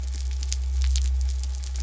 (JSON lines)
{"label": "anthrophony, boat engine", "recorder": "SoundTrap 300"}